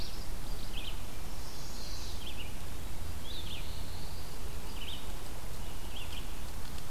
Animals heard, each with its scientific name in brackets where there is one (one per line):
Chestnut-sided Warbler (Setophaga pensylvanica)
Red-eyed Vireo (Vireo olivaceus)
Black-throated Blue Warbler (Setophaga caerulescens)